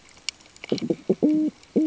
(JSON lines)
{"label": "ambient", "recorder": "HydroMoth"}